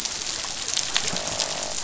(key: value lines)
label: biophony, croak
recorder: SoundTrap 500